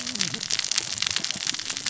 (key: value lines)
label: biophony, cascading saw
recorder: SoundTrap 600 or HydroMoth